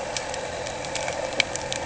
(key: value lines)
label: anthrophony, boat engine
recorder: HydroMoth